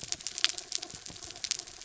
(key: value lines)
label: anthrophony, mechanical
recorder: SoundTrap 300